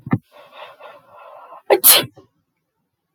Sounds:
Sneeze